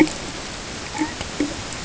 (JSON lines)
{"label": "ambient", "recorder": "HydroMoth"}